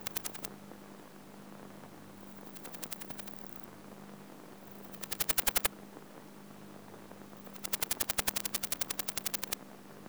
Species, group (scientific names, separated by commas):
Parnassiana tymphrestos, Orthoptera